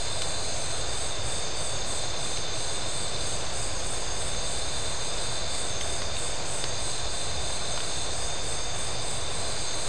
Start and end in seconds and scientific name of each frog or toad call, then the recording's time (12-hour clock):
none
8:30pm